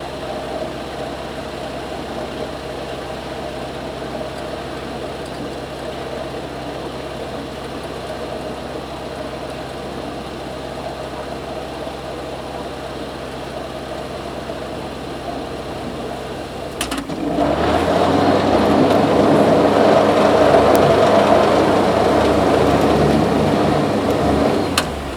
Is the object human made?
yes